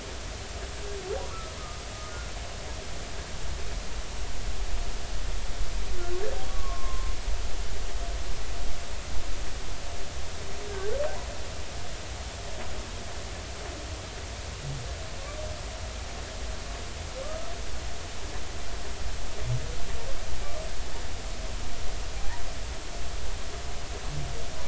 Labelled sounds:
1.3	1.8	humpback whale, 1.1 to 1.4 kHz
6.5	7.1	humpback whale, 0.99 to 1.2 kHz
17.2	17.5	humpback whale, 1.1 to 1.3 kHz
22.2	22.4	humpback whale, 0.80 to 0.99 kHz

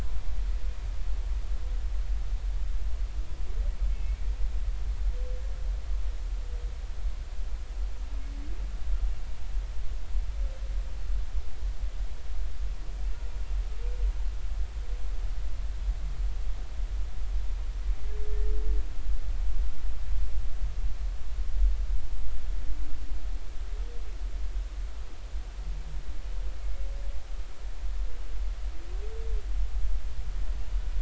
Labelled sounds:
4.0	4.3	humpback whale, 2.0 to 2.4 kHz

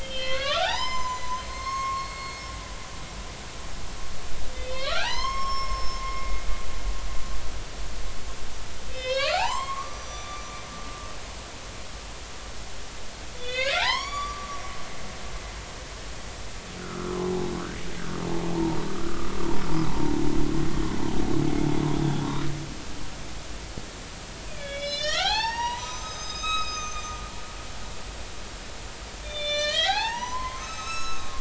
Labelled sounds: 0.0	2.9	humpback whale, 0.80 to 7.3 kHz
4.5	6.3	humpback whale, 0.80 to 6.5 kHz
8.9	10.5	humpback whale, 0.80 to 6.0 kHz
13.4	14.8	humpback whale, 0.80 to 7.0 kHz
16.8	17.2	humpback whale, 1.2 to 1.5 kHz
18.5	19.3	humpback whale, 0.80 to 1.5 kHz
19.9	20.1	humpback whale, 0.80 to 1.1 kHz
22.3	22.5	humpback whale, 0.93 to 1.4 kHz
24.6	27.2	humpback whale, 0.80 to 7.7 kHz
29.2	31.4	humpback whale, 0.80 to 6.4 kHz

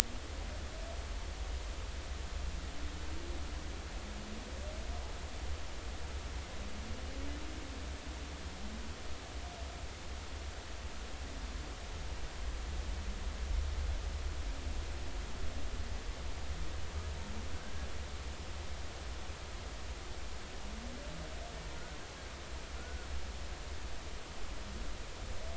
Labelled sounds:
17.6	17.9	humpback whale, 1.5 to 1.7 kHz
22.8	23.1	humpback whale, 1.3 to 1.5 kHz

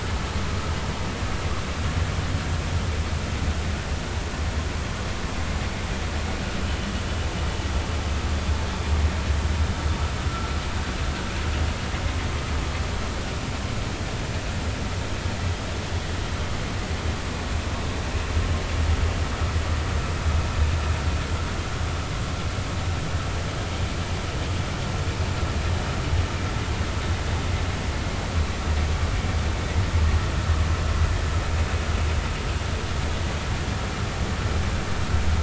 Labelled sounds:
6.7	6.9	vessel noise, 2.9 to 3.1 kHz

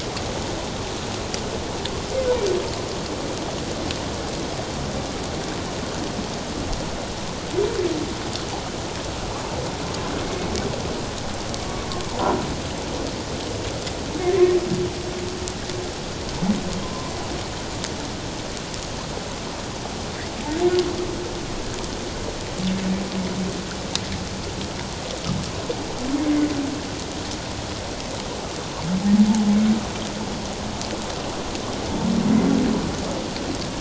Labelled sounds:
12.1	12.3	humpback whale, 0.88 to 1.1 kHz
16.8	17.1	humpback whale, 0.94 to 1.1 kHz

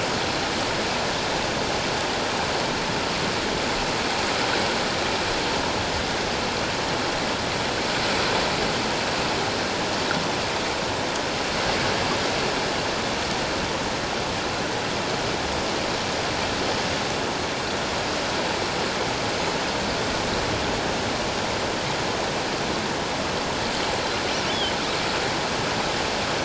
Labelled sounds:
24.5	24.7	killer whale, offshore, 3.0 to 3.5 kHz

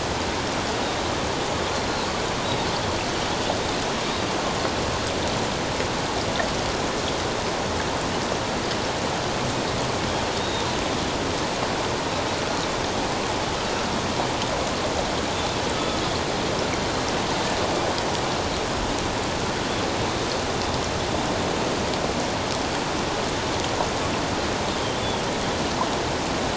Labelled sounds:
10.4	10.6	Pacific white-sided dolphin, 3.6 to 3.8 kHz
15.7	16.0	Pacific white-sided dolphin, 1.2 to 1.3 kHz
25.0	25.2	Pacific white-sided dolphin, 3.2 to 3.5 kHz

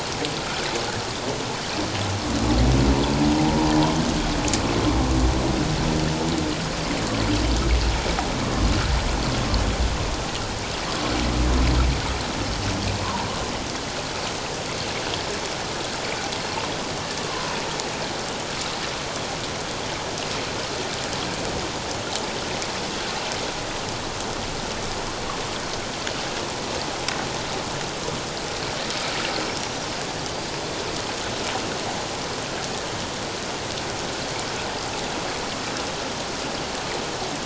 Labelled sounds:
3.4	3.7	humpback whale, 0.78 to 0.97 kHz
17.3	17.6	humpback whale, 0.91 to 1.1 kHz
29.6	29.9	killer whale, northern resident, 5.6 to 6.0 kHz

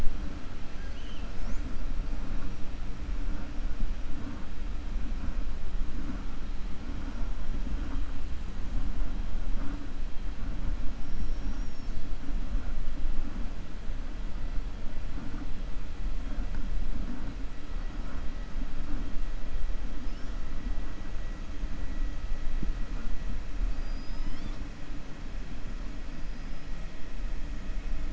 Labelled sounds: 0.7	1.3	killer whale, 1.6 to 3.9 kHz
11.0	12.1	killer whale, 4.0 to 6.8 kHz
23.6	24.6	killer whale, 1.1 to 7.9 kHz

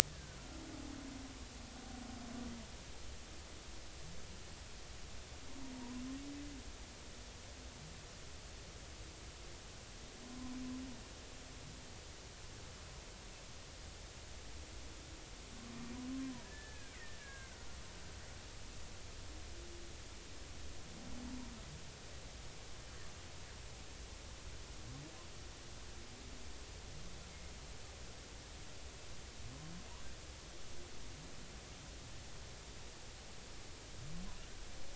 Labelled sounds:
0.1	0.4	killer whale, Bigg's (transient), 1.4 to 1.8 kHz
5.7	6.0	humpback whale, 0.90 to 1.1 kHz
16.4	17.5	killer whale, Bigg's (transient), 1.5 to 2.1 kHz

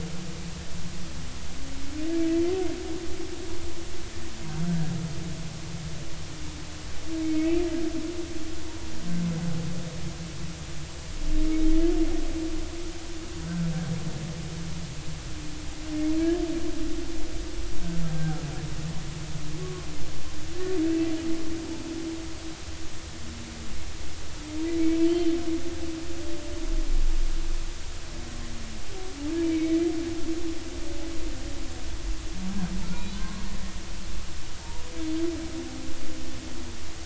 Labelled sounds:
7.2	7.6	humpback whale, 2.1 to 2.5 kHz
18.1	18.4	humpback whale, 1.3 to 1.6 kHz
19.6	19.9	humpback whale, 1.0 to 1.2 kHz
25.1	25.4	humpback whale, 2.9 to 3.3 kHz
29.4	29.7	humpback whale, 2.1 to 2.4 kHz
33.0	33.4	humpback whale, 0.99 to 4.1 kHz
34.6	34.9	humpback whale, 0.86 to 0.99 kHz

